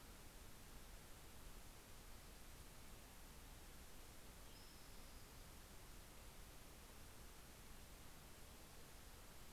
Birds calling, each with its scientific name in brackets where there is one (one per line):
Spotted Towhee (Pipilo maculatus)